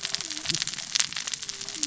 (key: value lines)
label: biophony, cascading saw
recorder: SoundTrap 600 or HydroMoth